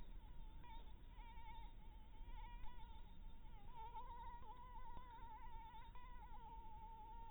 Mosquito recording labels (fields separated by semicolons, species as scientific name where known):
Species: Anopheles maculatus; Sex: female; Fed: blood-fed; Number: one; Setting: cup